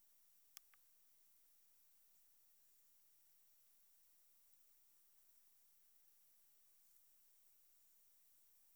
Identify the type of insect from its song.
orthopteran